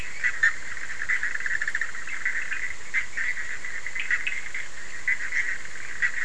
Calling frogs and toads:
Bischoff's tree frog
12:30am

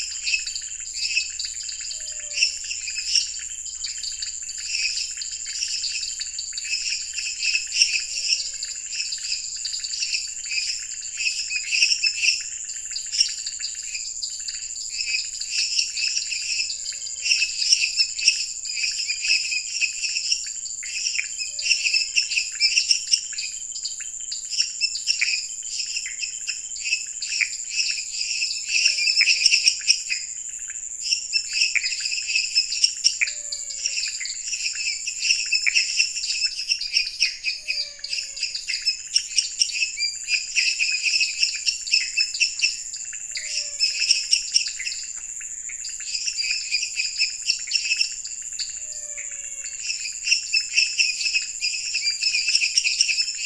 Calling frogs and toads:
lesser tree frog, dwarf tree frog, pointedbelly frog, menwig frog, Pithecopus azureus, Scinax fuscovarius
10pm

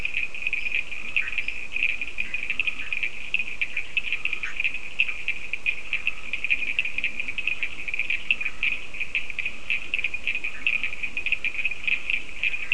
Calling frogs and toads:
Leptodactylus latrans, Cochran's lime tree frog, Scinax perereca, Bischoff's tree frog
4am

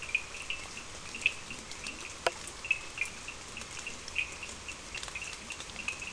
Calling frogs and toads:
Cochran's lime tree frog
4:30am

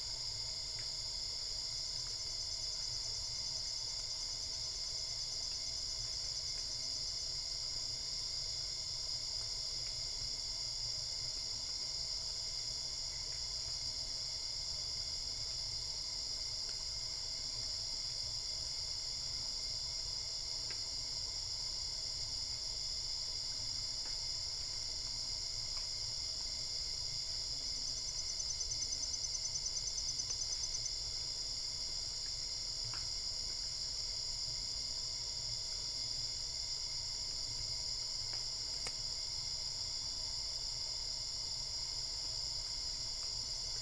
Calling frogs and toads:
none
11:30pm

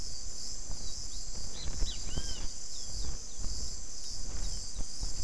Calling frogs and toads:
none
~6pm

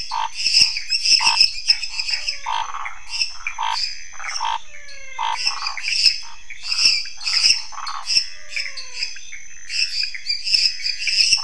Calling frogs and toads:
Scinax fuscovarius, waxy monkey tree frog, lesser tree frog, Pithecopus azureus, menwig frog, dwarf tree frog
11pm

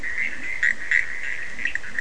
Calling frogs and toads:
Bischoff's tree frog, Leptodactylus latrans, Cochran's lime tree frog
midnight

